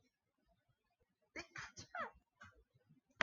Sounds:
Sneeze